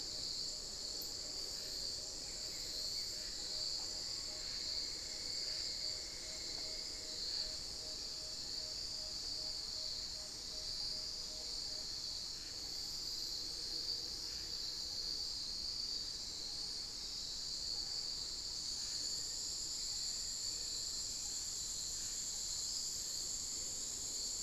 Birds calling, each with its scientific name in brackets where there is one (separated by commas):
Cinnamon-throated Woodcreeper (Dendrexetastes rufigula), Black-faced Antthrush (Formicarius analis), Tawny-bellied Screech-Owl (Megascops watsonii), Amazonian Barred-Woodcreeper (Dendrocolaptes certhia)